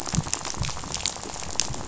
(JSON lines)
{"label": "biophony, rattle", "recorder": "SoundTrap 500"}